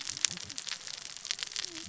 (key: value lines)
label: biophony, cascading saw
recorder: SoundTrap 600 or HydroMoth